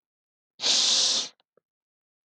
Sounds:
Sniff